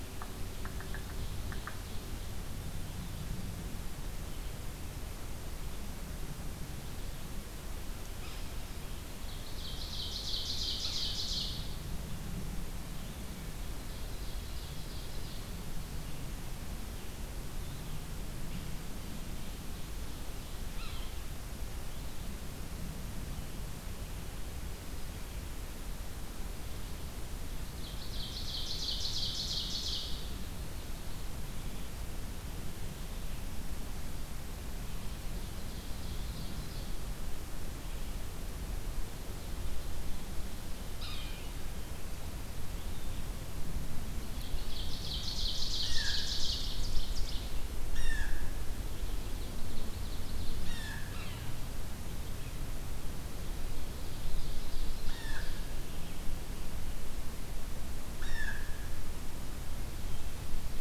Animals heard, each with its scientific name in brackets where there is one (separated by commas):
Ovenbird (Seiurus aurocapilla), Blue Jay (Cyanocitta cristata), Yellow-bellied Sapsucker (Sphyrapicus varius)